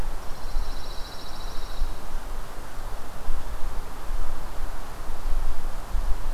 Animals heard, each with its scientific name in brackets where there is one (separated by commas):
Pine Warbler (Setophaga pinus)